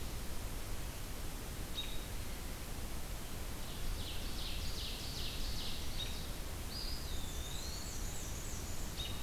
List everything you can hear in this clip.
American Robin, Ovenbird, Eastern Wood-Pewee, Black-and-white Warbler